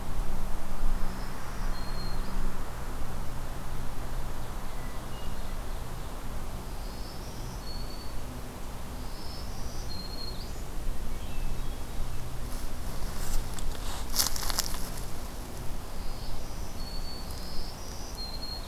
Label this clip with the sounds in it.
Black-throated Green Warbler, Ovenbird, Hermit Thrush